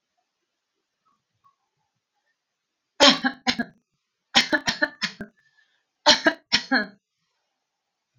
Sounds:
Cough